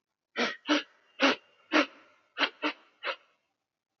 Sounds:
Sniff